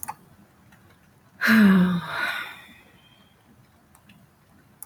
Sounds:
Sigh